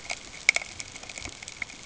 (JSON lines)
{"label": "ambient", "recorder": "HydroMoth"}